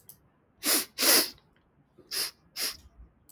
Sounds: Sniff